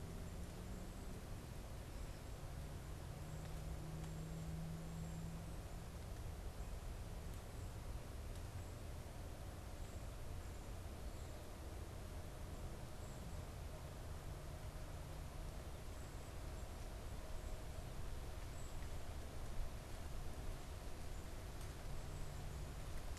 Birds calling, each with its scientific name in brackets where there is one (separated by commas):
Tufted Titmouse (Baeolophus bicolor)